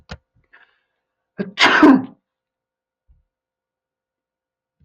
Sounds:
Sneeze